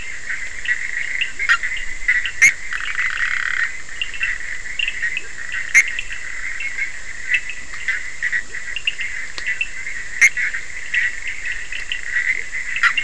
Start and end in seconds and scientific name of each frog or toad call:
0.0	13.0	Boana bischoffi
1.3	1.5	Leptodactylus latrans
2.6	3.8	Scinax perereca
5.1	5.3	Leptodactylus latrans
8.4	8.6	Leptodactylus latrans
12.3	12.5	Leptodactylus latrans